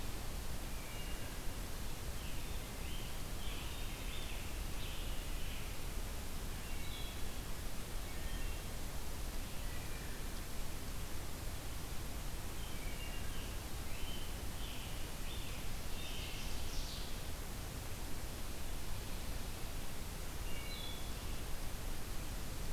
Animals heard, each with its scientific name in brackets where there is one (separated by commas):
Ovenbird (Seiurus aurocapilla), Scarlet Tanager (Piranga olivacea), Wood Thrush (Hylocichla mustelina)